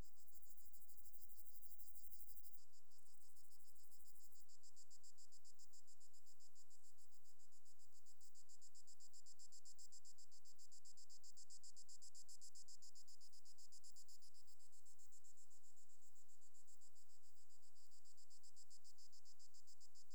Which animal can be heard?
Pseudochorthippus parallelus, an orthopteran